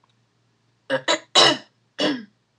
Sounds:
Throat clearing